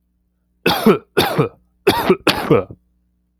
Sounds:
Cough